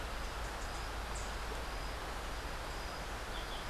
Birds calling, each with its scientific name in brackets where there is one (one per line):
Yellow-throated Euphonia (Euphonia hirundinacea)
Rufous-capped Warbler (Basileuterus rufifrons)